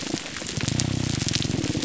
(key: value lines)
label: biophony, grouper groan
recorder: SoundTrap 300